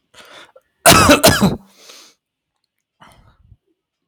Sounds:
Cough